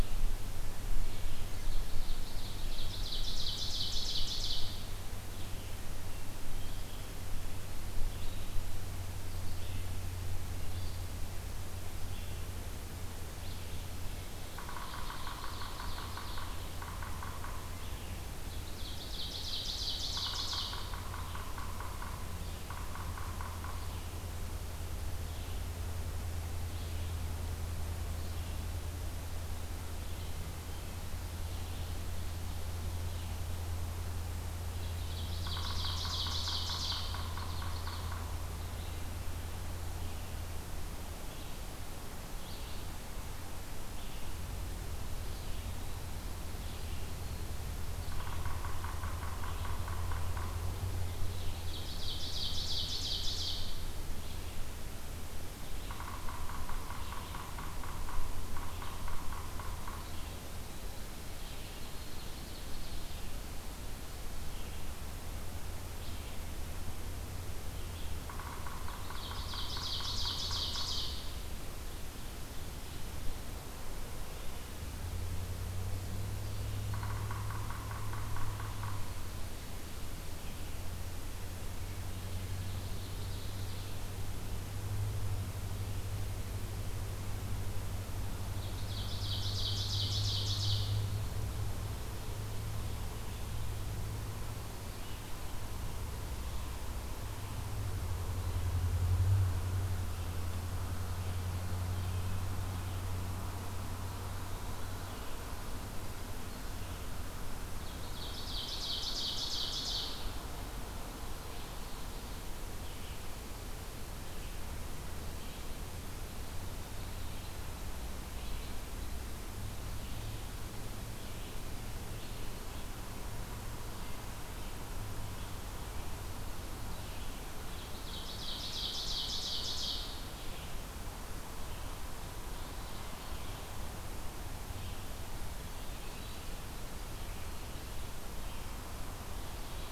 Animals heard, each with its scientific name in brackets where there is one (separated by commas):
Yellow-bellied Sapsucker (Sphyrapicus varius), Red-eyed Vireo (Vireo olivaceus), Ovenbird (Seiurus aurocapilla)